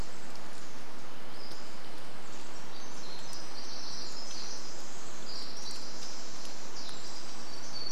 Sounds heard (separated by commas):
Pacific-slope Flycatcher call, Pacific Wren song